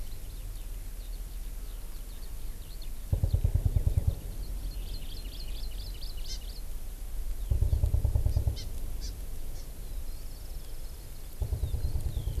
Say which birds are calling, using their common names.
Eurasian Skylark, Hawaii Amakihi